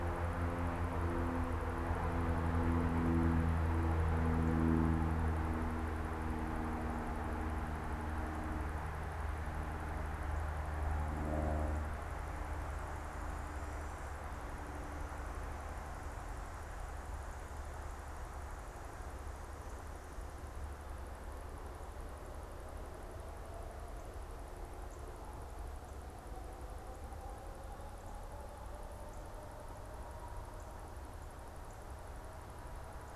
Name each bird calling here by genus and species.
Cardinalis cardinalis